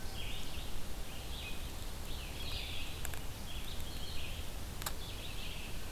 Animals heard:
Red-eyed Vireo (Vireo olivaceus)

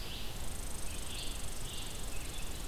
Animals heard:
Red-eyed Vireo (Vireo olivaceus), Red Squirrel (Tamiasciurus hudsonicus)

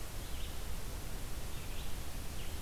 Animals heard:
Blue-headed Vireo (Vireo solitarius)

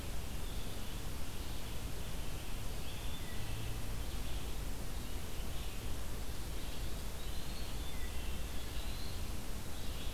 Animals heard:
Black-throated Blue Warbler (Setophaga caerulescens), Wood Thrush (Hylocichla mustelina), Eastern Wood-Pewee (Contopus virens), Red-eyed Vireo (Vireo olivaceus)

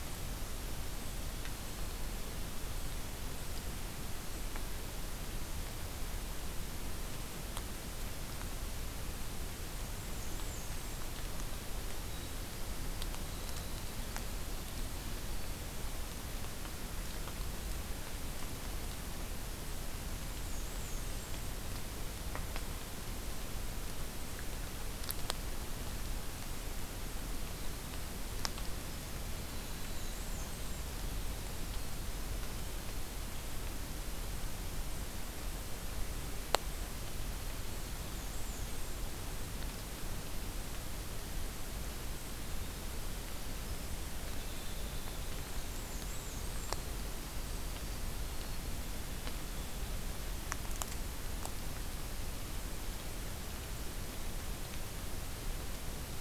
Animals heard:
White-throated Sparrow (Zonotrichia albicollis), Winter Wren (Troglodytes hiemalis), Black-and-white Warbler (Mniotilta varia)

